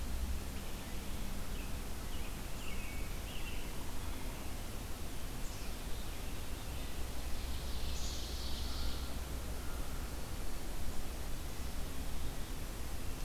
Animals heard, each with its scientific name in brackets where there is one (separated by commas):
Black-capped Chickadee (Poecile atricapillus), American Robin (Turdus migratorius), American Crow (Corvus brachyrhynchos), Ovenbird (Seiurus aurocapilla)